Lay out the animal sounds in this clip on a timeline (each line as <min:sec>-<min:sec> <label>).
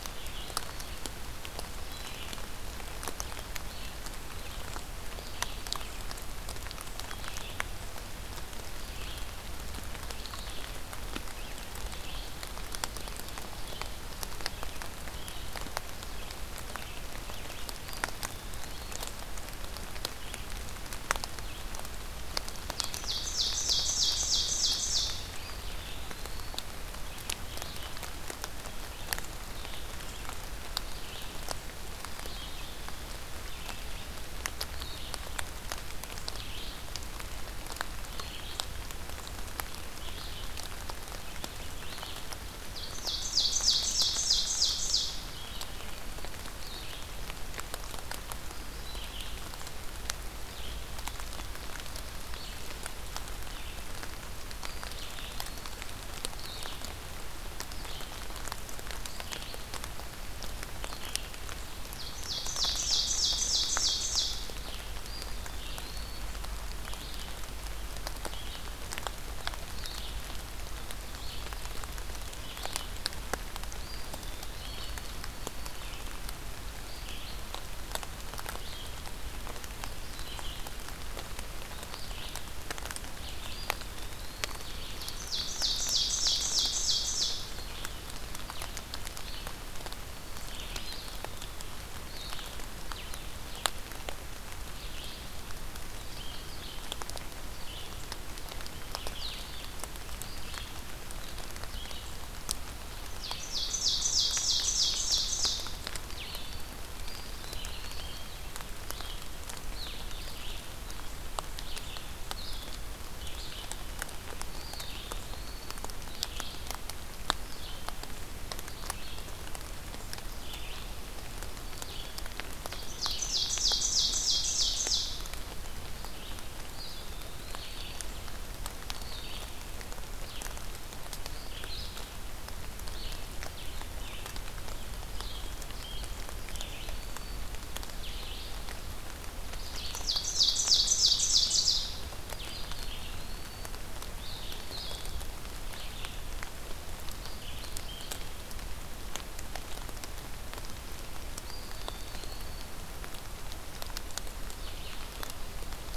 0:00.0-0:01.0 Eastern Wood-Pewee (Contopus virens)
0:00.0-1:01.3 Red-eyed Vireo (Vireo olivaceus)
0:17.5-0:19.1 Eastern Wood-Pewee (Contopus virens)
0:22.5-0:25.3 Ovenbird (Seiurus aurocapilla)
0:25.4-0:26.6 Eastern Wood-Pewee (Contopus virens)
0:31.7-0:33.1 Eastern Wood-Pewee (Contopus virens)
0:42.5-0:45.3 Ovenbird (Seiurus aurocapilla)
0:54.4-0:55.9 Eastern Wood-Pewee (Contopus virens)
1:01.8-1:04.5 Ovenbird (Seiurus aurocapilla)
1:02.6-2:02.1 Red-eyed Vireo (Vireo olivaceus)
1:04.9-1:06.4 Eastern Wood-Pewee (Contopus virens)
1:13.6-1:15.1 Eastern Wood-Pewee (Contopus virens)
1:23.2-1:24.7 Eastern Wood-Pewee (Contopus virens)
1:24.8-1:27.6 Ovenbird (Seiurus aurocapilla)
1:30.5-1:31.7 Eastern Wood-Pewee (Contopus virens)
1:43.1-1:45.7 Ovenbird (Seiurus aurocapilla)
1:47.0-1:48.3 Eastern Wood-Pewee (Contopus virens)
1:54.3-1:56.1 Eastern Wood-Pewee (Contopus virens)
2:02.6-2:05.3 Ovenbird (Seiurus aurocapilla)
2:03.0-2:36.0 Red-eyed Vireo (Vireo olivaceus)
2:06.6-2:08.1 Eastern Wood-Pewee (Contopus virens)
2:16.5-2:17.5 Black-throated Green Warbler (Setophaga virens)
2:19.5-2:21.9 Ovenbird (Seiurus aurocapilla)
2:22.4-2:23.7 Eastern Wood-Pewee (Contopus virens)
2:31.3-2:32.9 Eastern Wood-Pewee (Contopus virens)